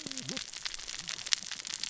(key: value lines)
label: biophony, cascading saw
recorder: SoundTrap 600 or HydroMoth